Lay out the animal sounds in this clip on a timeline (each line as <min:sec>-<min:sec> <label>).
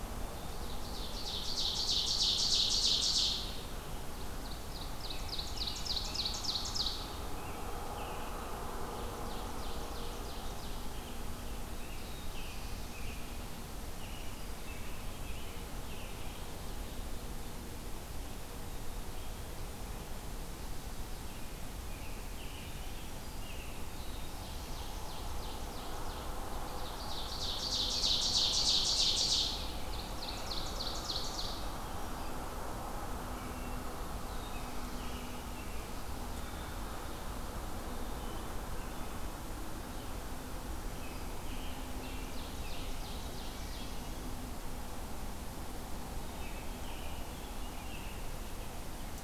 0:00.3-0:03.7 Ovenbird (Seiurus aurocapilla)
0:04.0-0:07.4 Ovenbird (Seiurus aurocapilla)
0:05.0-0:06.4 American Robin (Turdus migratorius)
0:07.2-0:08.4 American Robin (Turdus migratorius)
0:08.7-0:10.8 Ovenbird (Seiurus aurocapilla)
0:10.9-0:13.4 American Robin (Turdus migratorius)
0:13.9-0:16.5 American Robin (Turdus migratorius)
0:21.9-0:23.9 American Robin (Turdus migratorius)
0:22.7-0:23.6 Black-throated Green Warbler (Setophaga virens)
0:23.7-0:25.3 Black-throated Blue Warbler (Setophaga caerulescens)
0:24.2-0:31.8 Ovenbird (Seiurus aurocapilla)
0:27.9-0:30.6 American Robin (Turdus migratorius)
0:33.2-0:34.0 Wood Thrush (Hylocichla mustelina)
0:34.1-0:35.6 Black-throated Blue Warbler (Setophaga caerulescens)
0:34.5-0:36.1 American Robin (Turdus migratorius)
0:38.7-0:39.4 Wood Thrush (Hylocichla mustelina)
0:40.7-0:43.0 American Robin (Turdus migratorius)
0:41.6-0:44.3 Ovenbird (Seiurus aurocapilla)
0:46.3-0:48.2 American Robin (Turdus migratorius)